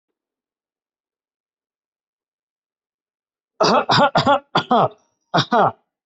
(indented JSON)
{
  "expert_labels": [
    {
      "quality": "good",
      "cough_type": "dry",
      "dyspnea": false,
      "wheezing": false,
      "stridor": false,
      "choking": false,
      "congestion": false,
      "nothing": true,
      "diagnosis": "healthy cough",
      "severity": "pseudocough/healthy cough"
    }
  ],
  "age": 25,
  "gender": "male",
  "respiratory_condition": false,
  "fever_muscle_pain": false,
  "status": "healthy"
}